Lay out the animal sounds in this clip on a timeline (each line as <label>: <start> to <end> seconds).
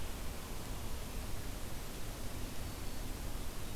Black-throated Green Warbler (Setophaga virens): 2.4 to 3.1 seconds